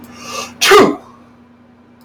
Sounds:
Sneeze